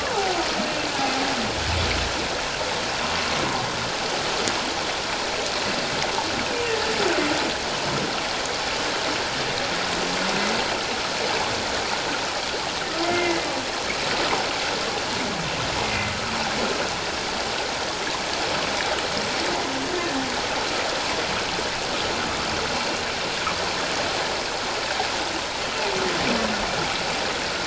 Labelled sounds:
13.0	13.5	humpback whale, 2.0 to 2.2 kHz
15.8	16.1	humpback whale, 2.0 to 2.2 kHz

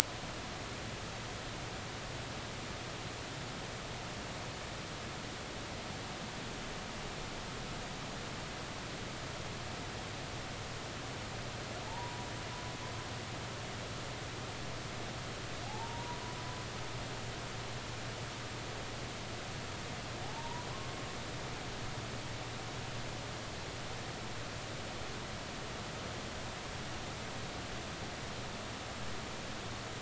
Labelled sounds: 11.9	12.2	humpback whale, 0.83 to 1.1 kHz
15.7	16.2	humpback whale, 0.80 to 1.0 kHz
20.2	20.7	humpback whale, 0.80 to 1.1 kHz

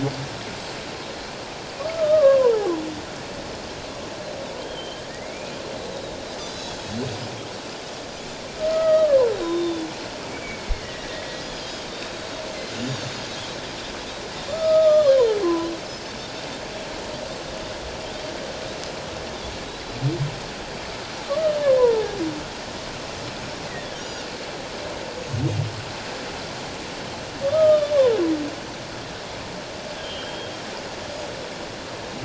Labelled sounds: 1.8	2.7	humpback whale, 0.78 to 1.3 kHz
4.6	5.0	Pacific white-sided dolphin, 3.0 to 3.4 kHz
5.1	5.5	humpback whale, 1.8 to 2.6 kHz
6.5	6.9	Pacific white-sided dolphin, 3.2 to 5.6 kHz
8.6	9.9	humpback whale, 0.91 to 3.9 kHz
9.4	9.7	Pacific white-sided dolphin, 0.97 to 1.1 kHz
10.3	11.6	Pacific white-sided dolphin, 1.8 to 3.5 kHz
11.9	13.3	Pacific white-sided dolphin, 3.6 to 7.2 kHz
14.5	15.7	humpback whale, 0.81 to 1.3 kHz
14.8	15.2	Pacific white-sided dolphin, 3.3 to 4.3 kHz
19.6	20.0	Pacific white-sided dolphin, 3.6 to 4.1 kHz
21.8	22.1	humpback whale, 0.78 to 1.1 kHz
23.9	24.2	Pacific white-sided dolphin, 5.6 to 7.0 kHz
27.4	27.9	humpback whale, 1.1 to 3.2 kHz
30.0	30.5	humpback whale, 3.1 to 3.4 kHz

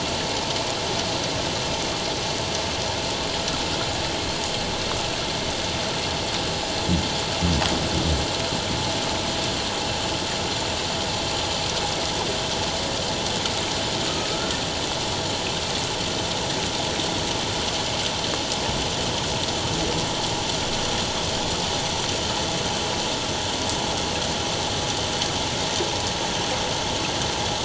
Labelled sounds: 14.3	14.6	humpback whale, 1.2 to 1.5 kHz

